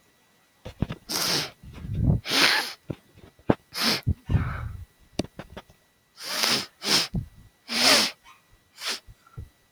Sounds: Sniff